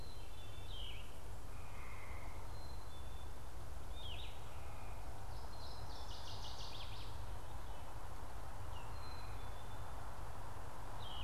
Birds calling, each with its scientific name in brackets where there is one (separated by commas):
Black-capped Chickadee (Poecile atricapillus), Yellow-throated Vireo (Vireo flavifrons), Northern Waterthrush (Parkesia noveboracensis)